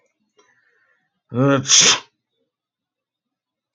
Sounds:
Sneeze